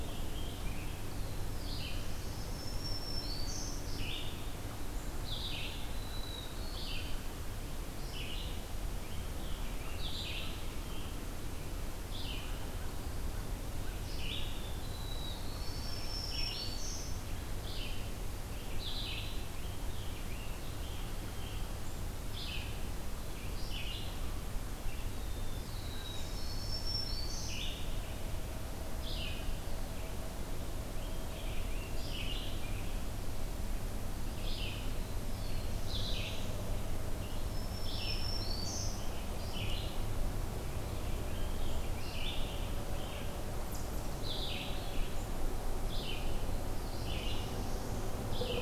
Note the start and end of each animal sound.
0.0s-1.2s: American Robin (Turdus migratorius)
0.0s-48.6s: Red-eyed Vireo (Vireo olivaceus)
0.9s-2.9s: Black-throated Blue Warbler (Setophaga caerulescens)
2.1s-4.1s: Black-throated Green Warbler (Setophaga virens)
5.7s-7.3s: Black-throated Blue Warbler (Setophaga caerulescens)
14.2s-16.0s: Black-throated Blue Warbler (Setophaga caerulescens)
15.5s-17.3s: Black-throated Green Warbler (Setophaga virens)
18.6s-21.7s: American Robin (Turdus migratorius)
25.0s-27.0s: Black-throated Blue Warbler (Setophaga caerulescens)
26.3s-27.8s: Black-throated Green Warbler (Setophaga virens)
30.8s-33.0s: American Robin (Turdus migratorius)
34.8s-36.8s: Black-throated Blue Warbler (Setophaga caerulescens)
37.3s-39.4s: Black-throated Green Warbler (Setophaga virens)
40.4s-42.4s: American Robin (Turdus migratorius)
46.4s-48.2s: Black-throated Blue Warbler (Setophaga caerulescens)

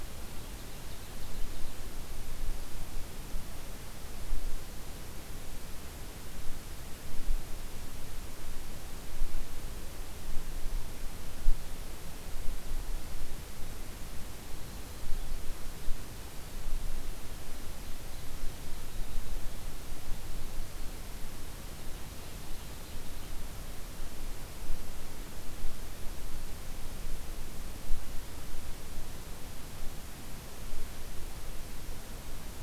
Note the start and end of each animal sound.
0.0s-1.7s: Ovenbird (Seiurus aurocapilla)
14.4s-16.2s: Winter Wren (Troglodytes hiemalis)

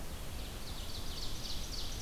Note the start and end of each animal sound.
0.1s-2.0s: Ovenbird (Seiurus aurocapilla)

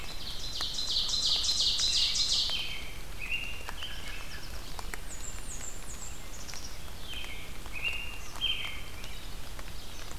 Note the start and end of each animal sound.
0.0s-10.2s: Red-eyed Vireo (Vireo olivaceus)
0.0s-2.6s: Ovenbird (Seiurus aurocapilla)
1.9s-4.5s: American Robin (Turdus migratorius)
4.0s-4.9s: Yellow Warbler (Setophaga petechia)
4.8s-6.2s: Blackburnian Warbler (Setophaga fusca)
6.2s-6.8s: Black-capped Chickadee (Poecile atricapillus)
6.9s-9.3s: American Robin (Turdus migratorius)

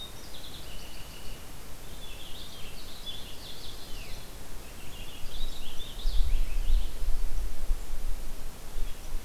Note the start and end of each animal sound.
0.0s-1.5s: Purple Finch (Haemorhous purpureus)
1.8s-7.1s: Purple Finch (Haemorhous purpureus)

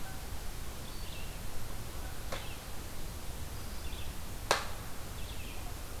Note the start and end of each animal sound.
0.0s-6.0s: Red-eyed Vireo (Vireo olivaceus)

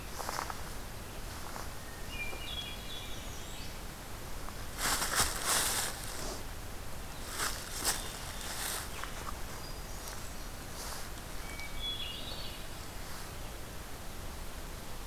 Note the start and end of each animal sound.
1.7s-4.1s: Hermit Thrush (Catharus guttatus)
2.8s-3.8s: American Redstart (Setophaga ruticilla)
9.4s-10.9s: Hermit Thrush (Catharus guttatus)
9.8s-10.5s: American Redstart (Setophaga ruticilla)
11.1s-12.9s: Hermit Thrush (Catharus guttatus)
11.8s-12.4s: Red-eyed Vireo (Vireo olivaceus)

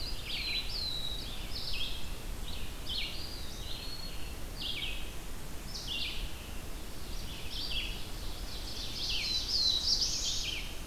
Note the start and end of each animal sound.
0.0s-3.9s: Red-eyed Vireo (Vireo olivaceus)
0.0s-1.5s: Black-throated Blue Warbler (Setophaga caerulescens)
2.9s-4.7s: Eastern Wood-Pewee (Contopus virens)
4.5s-10.9s: Red-eyed Vireo (Vireo olivaceus)
8.3s-10.6s: Ovenbird (Seiurus aurocapilla)
8.9s-10.6s: Black-throated Blue Warbler (Setophaga caerulescens)

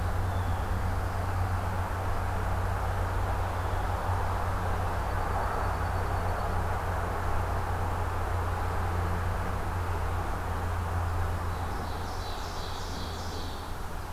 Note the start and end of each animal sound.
0.2s-0.9s: Blue Jay (Cyanocitta cristata)
4.9s-6.8s: Dark-eyed Junco (Junco hyemalis)
11.0s-13.8s: Ovenbird (Seiurus aurocapilla)

